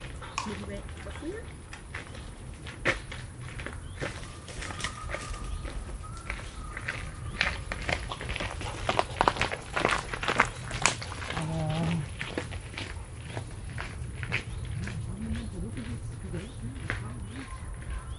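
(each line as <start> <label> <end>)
0.0 A person is talking and walking on gravel while birds chirp in the background. 18.2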